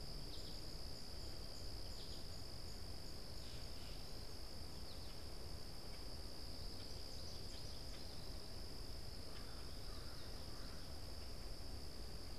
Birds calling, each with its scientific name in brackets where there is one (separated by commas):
American Crow (Corvus brachyrhynchos), American Goldfinch (Spinus tristis)